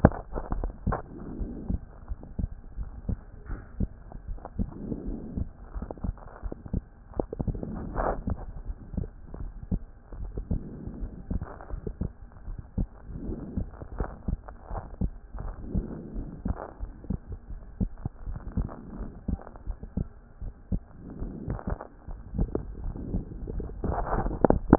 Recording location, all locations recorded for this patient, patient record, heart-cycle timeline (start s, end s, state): pulmonary valve (PV)
aortic valve (AV)+pulmonary valve (PV)+tricuspid valve (TV)+mitral valve (MV)
#Age: Child
#Sex: Male
#Height: 127.0 cm
#Weight: 26.6 kg
#Pregnancy status: False
#Murmur: Absent
#Murmur locations: nan
#Most audible location: nan
#Systolic murmur timing: nan
#Systolic murmur shape: nan
#Systolic murmur grading: nan
#Systolic murmur pitch: nan
#Systolic murmur quality: nan
#Diastolic murmur timing: nan
#Diastolic murmur shape: nan
#Diastolic murmur grading: nan
#Diastolic murmur pitch: nan
#Diastolic murmur quality: nan
#Outcome: Abnormal
#Campaign: 2014 screening campaign
0.00	1.38	unannotated
1.38	1.50	S1
1.50	1.68	systole
1.68	1.80	S2
1.80	2.10	diastole
2.10	2.18	S1
2.18	2.38	systole
2.38	2.50	S2
2.50	2.78	diastole
2.78	2.88	S1
2.88	3.06	systole
3.06	3.18	S2
3.18	3.50	diastole
3.50	3.60	S1
3.60	3.78	systole
3.78	3.90	S2
3.90	4.28	diastole
4.28	4.38	S1
4.38	4.58	systole
4.58	4.70	S2
4.70	5.06	diastole
5.06	5.18	S1
5.18	5.36	systole
5.36	5.46	S2
5.46	5.76	diastole
5.76	5.86	S1
5.86	6.04	systole
6.04	6.16	S2
6.16	6.44	diastole
6.44	6.54	S1
6.54	6.72	systole
6.72	6.84	S2
6.84	7.16	diastole
7.16	7.26	S1
7.26	7.42	systole
7.42	7.54	S2
7.54	7.98	diastole
7.98	8.12	S1
8.12	8.26	systole
8.26	8.38	S2
8.38	8.66	diastole
8.66	8.76	S1
8.76	8.96	systole
8.96	9.06	S2
9.06	9.40	diastole
9.40	9.52	S1
9.52	9.70	systole
9.70	9.80	S2
9.80	10.20	diastole
10.20	10.30	S1
10.30	10.50	systole
10.50	10.60	S2
10.60	11.00	diastole
11.00	11.12	S1
11.12	11.30	systole
11.30	11.44	S2
11.44	11.72	diastole
11.72	11.82	S1
11.82	12.00	systole
12.00	12.10	S2
12.10	12.48	diastole
12.48	12.58	S1
12.58	12.76	systole
12.76	12.88	S2
12.88	13.26	diastole
13.26	13.38	S1
13.38	13.56	systole
13.56	13.66	S2
13.66	13.98	diastole
13.98	14.08	S1
14.08	14.28	systole
14.28	14.38	S2
14.38	14.72	diastole
14.72	14.82	S1
14.82	15.00	systole
15.00	15.12	S2
15.12	15.42	diastole
15.42	15.54	S1
15.54	15.72	systole
15.72	15.84	S2
15.84	16.16	diastole
16.16	16.28	S1
16.28	16.46	systole
16.46	16.56	S2
16.56	16.82	diastole
16.82	16.92	S1
16.92	17.08	systole
17.08	17.20	S2
17.20	17.50	diastole
17.50	17.62	S1
17.62	17.80	systole
17.80	17.90	S2
17.90	18.28	diastole
18.28	18.40	S1
18.40	18.56	systole
18.56	18.68	S2
18.68	18.98	diastole
18.98	19.10	S1
19.10	19.28	systole
19.28	19.40	S2
19.40	19.68	diastole
19.68	19.78	S1
19.78	19.96	systole
19.96	20.08	S2
20.08	20.42	diastole
20.42	20.52	S1
20.52	20.70	systole
20.70	20.82	S2
20.82	21.18	diastole
21.18	24.78	unannotated